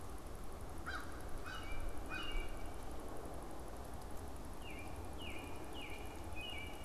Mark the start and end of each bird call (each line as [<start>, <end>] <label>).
[0.56, 2.56] American Crow (Corvus brachyrhynchos)
[1.26, 2.86] American Robin (Turdus migratorius)
[4.26, 6.85] American Robin (Turdus migratorius)
[5.56, 6.85] Canada Goose (Branta canadensis)